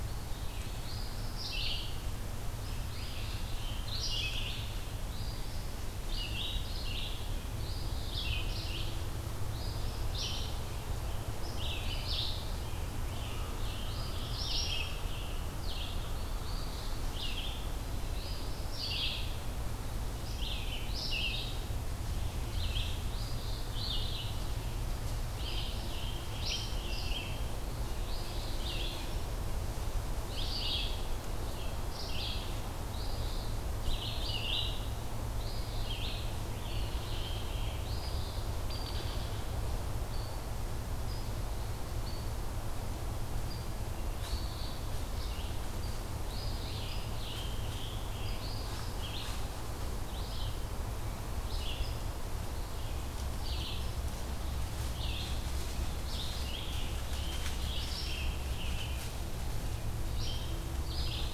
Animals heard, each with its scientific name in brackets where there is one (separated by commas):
Hairy Woodpecker (Dryobates villosus), Eastern Wood-Pewee (Contopus virens), Scarlet Tanager (Piranga olivacea), Red-eyed Vireo (Vireo olivaceus), Eastern Phoebe (Sayornis phoebe)